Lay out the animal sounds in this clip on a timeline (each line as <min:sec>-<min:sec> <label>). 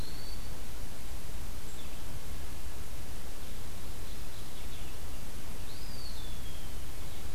0:00.0-0:00.6 Eastern Wood-Pewee (Contopus virens)
0:00.0-0:07.3 Blue-headed Vireo (Vireo solitarius)
0:03.9-0:05.0 Mourning Warbler (Geothlypis philadelphia)
0:05.5-0:06.9 Eastern Wood-Pewee (Contopus virens)